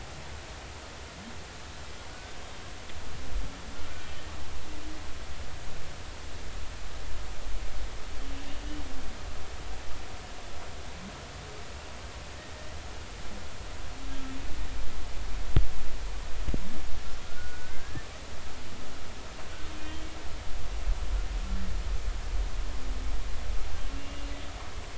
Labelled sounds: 2.1	2.4	humpback whale, 1.4 to 1.6 kHz
17.2	18.1	humpback whale, 1.3 to 1.9 kHz
23.9	24.3	humpback whale, 2.7 to 2.9 kHz

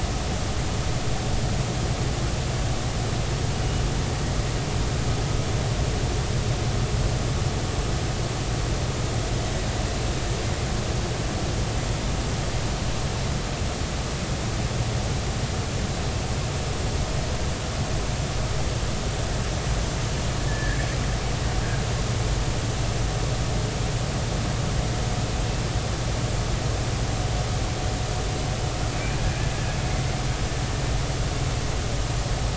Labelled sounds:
20.5	20.8	killer whale, Bigg's (transient), 1.6 to 1.9 kHz

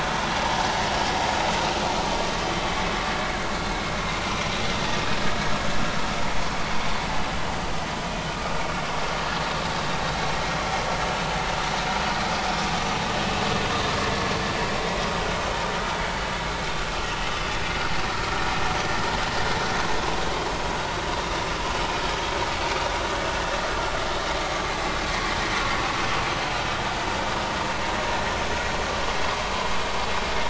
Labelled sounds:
0.3	0.6	vessel noise, 0.80 to 0.99 kHz
4.2	4.5	vessel noise, 2.3 to 2.5 kHz
6.6	6.9	vessel noise, 4.5 to 4.7 kHz

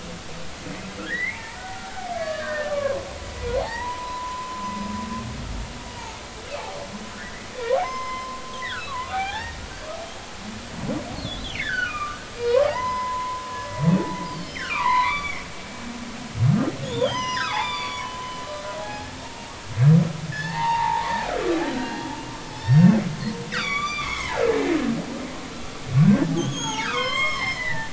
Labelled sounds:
1.0	3.0	humpback whale, 0.80 to 4.7 kHz
3.4	4.7	humpback whale, 0.80 to 1.1 kHz
7.1	9.6	humpback whale, 0.80 to 5.2 kHz
11.2	13.4	humpback whale, 0.80 to 5.1 kHz
14.3	15.4	humpback whale, 0.86 to 5.8 kHz
16.8	19.5	humpback whale, 0.80 to 6.4 kHz
20.3	21.3	humpback whale, 0.80 to 2.8 kHz
21.7	22.2	humpback whale, 1.4 to 4.2 kHz
22.4	24.8	humpback whale, 0.80 to 7.1 kHz
26.0	27.9	humpback whale, 0.80 to 7.6 kHz

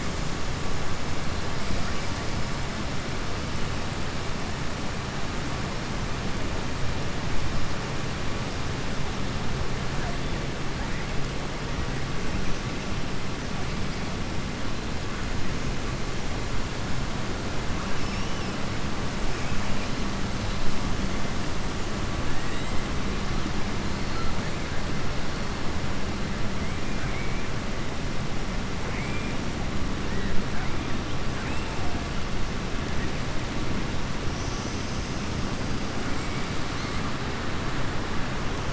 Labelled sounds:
28.8	29.3	killer whale, southern resident, 1.5 to 2.6 kHz

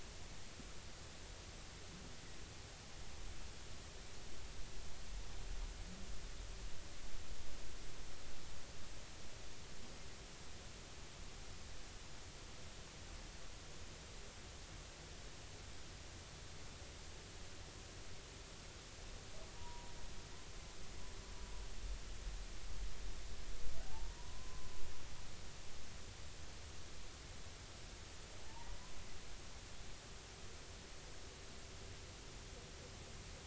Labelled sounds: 19.5	19.9	humpback whale, 0.90 to 1.0 kHz
24.2	24.7	humpback whale, 0.93 to 1.1 kHz
28.4	28.8	humpback whale, 0.80 to 0.99 kHz

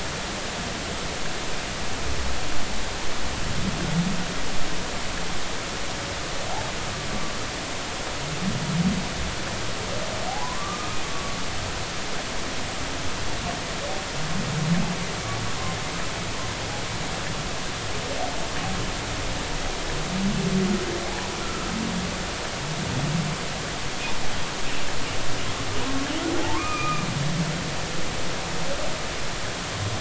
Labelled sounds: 10.3	11.4	humpback whale, 0.80 to 1.3 kHz
21.4	21.7	humpback whale, 1.2 to 1.4 kHz
26.4	27.0	humpback whale, 0.80 to 2.5 kHz

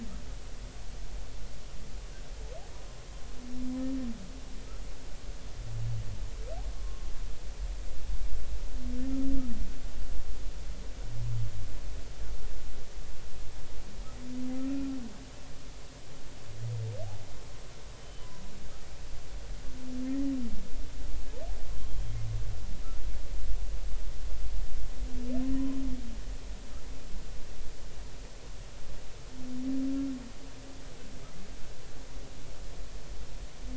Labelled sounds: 6.7	7.1	humpback whale, 1.0 to 1.1 kHz
14.6	15.0	humpback whale, 1.2 to 2.5 kHz
18.0	18.3	humpback whale, 3.0 to 3.1 kHz
20.1	20.4	humpback whale, 1.8 to 2.0 kHz
21.8	22.1	humpback whale, 3.1 to 3.3 kHz

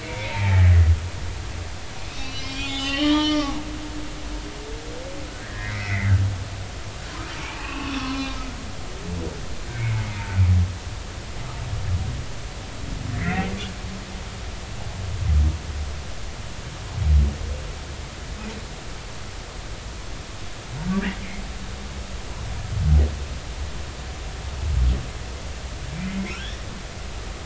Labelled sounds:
0.0	0.7	humpback whale, 0.80 to 2.5 kHz
2.1	3.6	humpback whale, 0.80 to 5.8 kHz
5.4	6.1	humpback whale, 1.5 to 2.6 kHz
7.5	8.4	humpback whale, 0.96 to 4.2 kHz
9.7	10.2	humpback whale, 2.0 to 2.3 kHz
13.1	13.5	humpback whale, 1.7 to 2.2 kHz
20.9	21.2	humpback whale, 1.4 to 2.1 kHz
26.0	26.6	humpback whale, 1.2 to 2.2 kHz

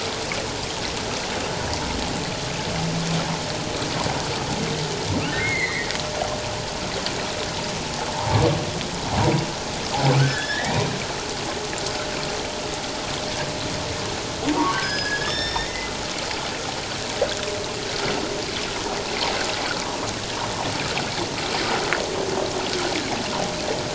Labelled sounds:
5.3	5.9	humpback whale, 1.4 to 4.3 kHz
8.1	8.4	humpback whale, 0.78 to 1.1 kHz
10.2	10.9	humpback whale, 1.4 to 3.7 kHz
14.5	15.9	humpback whale, 0.88 to 5.5 kHz

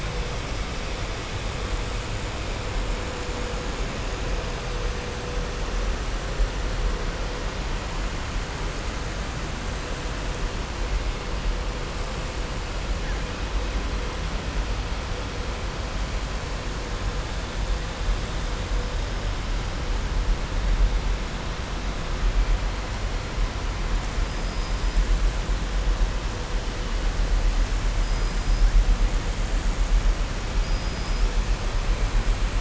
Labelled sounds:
30.5	31.3	killer whale, southern resident, 4.9 to 5.7 kHz

